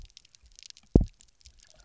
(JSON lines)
{"label": "biophony, double pulse", "recorder": "SoundTrap 300"}